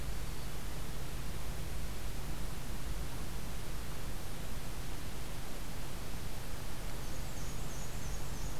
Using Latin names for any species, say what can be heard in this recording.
Setophaga virens, Mniotilta varia